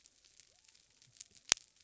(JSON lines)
{"label": "biophony", "recorder": "SoundTrap 300"}